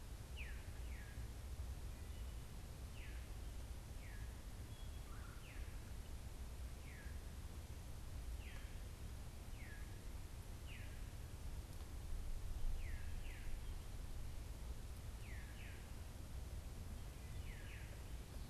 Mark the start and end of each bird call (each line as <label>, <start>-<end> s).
Veery (Catharus fuscescens), 0.0-18.1 s
Red-bellied Woodpecker (Melanerpes carolinus), 5.0-5.5 s